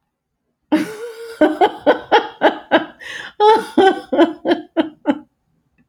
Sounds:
Laughter